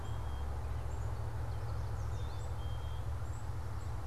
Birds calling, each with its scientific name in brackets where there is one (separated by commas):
Yellow Warbler (Setophaga petechia), Black-capped Chickadee (Poecile atricapillus)